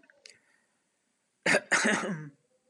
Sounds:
Throat clearing